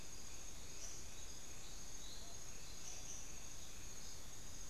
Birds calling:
unidentified bird

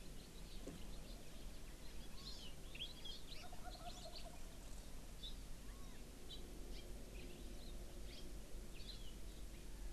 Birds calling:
Wild Turkey (Meleagris gallopavo)
Hawaii Amakihi (Chlorodrepanis virens)
Chinese Hwamei (Garrulax canorus)
House Finch (Haemorhous mexicanus)

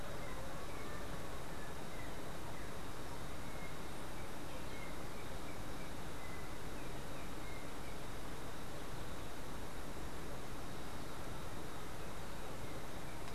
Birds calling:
Yellow-backed Oriole (Icterus chrysater)

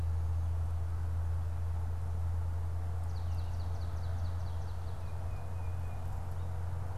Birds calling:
Tufted Titmouse (Baeolophus bicolor)
Swamp Sparrow (Melospiza georgiana)

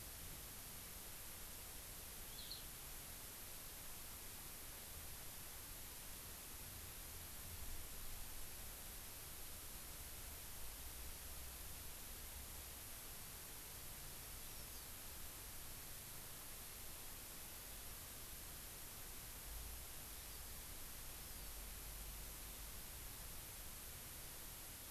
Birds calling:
Hawaii Amakihi (Chlorodrepanis virens)
Eurasian Skylark (Alauda arvensis)

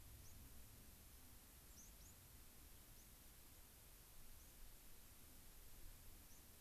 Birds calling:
White-crowned Sparrow (Zonotrichia leucophrys)

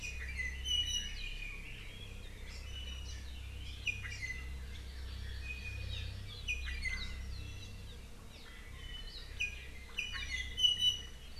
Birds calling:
Iiwi (Drepanis coccinea)
Hawaii Amakihi (Chlorodrepanis virens)

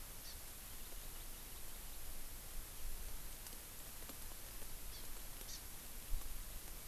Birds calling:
Hawaii Amakihi (Chlorodrepanis virens)

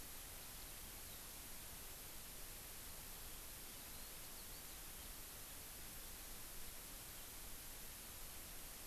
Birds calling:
Eurasian Skylark (Alauda arvensis)

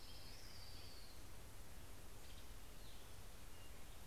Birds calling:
Western Tanager (Piranga ludoviciana)
Orange-crowned Warbler (Leiothlypis celata)
Black-headed Grosbeak (Pheucticus melanocephalus)

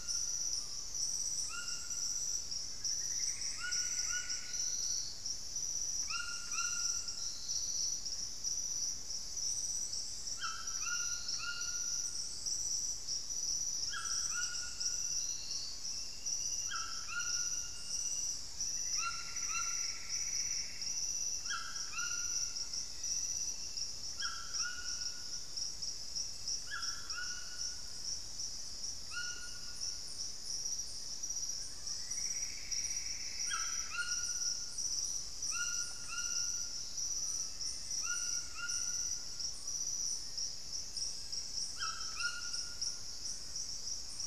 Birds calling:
Black-faced Antthrush (Formicarius analis)
Screaming Piha (Lipaugus vociferans)
Plumbeous Antbird (Myrmelastes hyperythrus)
White-throated Toucan (Ramphastos tucanus)

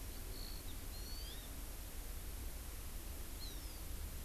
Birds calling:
Hawaii Amakihi (Chlorodrepanis virens)

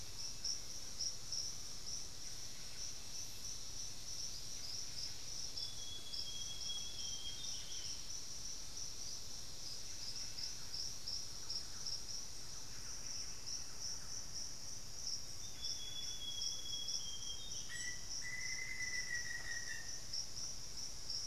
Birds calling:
Thrush-like Wren (Campylorhynchus turdinus)
Black-faced Antthrush (Formicarius analis)
Buff-breasted Wren (Cantorchilus leucotis)
Amazonian Grosbeak (Cyanoloxia rothschildii)

